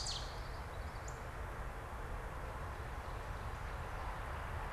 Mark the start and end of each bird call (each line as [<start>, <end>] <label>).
[0.00, 1.23] Common Yellowthroat (Geothlypis trichas)
[0.93, 1.23] Northern Cardinal (Cardinalis cardinalis)
[1.53, 4.72] Northern Flicker (Colaptes auratus)